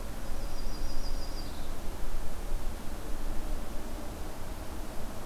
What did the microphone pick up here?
Yellow-rumped Warbler